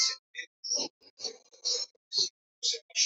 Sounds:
Sniff